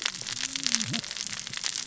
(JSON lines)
{"label": "biophony, cascading saw", "recorder": "SoundTrap 600 or HydroMoth"}